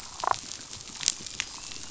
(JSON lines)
{"label": "biophony, damselfish", "recorder": "SoundTrap 500"}